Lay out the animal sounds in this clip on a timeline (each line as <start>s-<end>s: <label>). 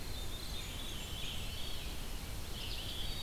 0.0s-1.5s: Blackburnian Warbler (Setophaga fusca)
0.0s-2.0s: Veery (Catharus fuscescens)
0.0s-3.2s: Red-eyed Vireo (Vireo olivaceus)
1.3s-2.3s: Eastern Wood-Pewee (Contopus virens)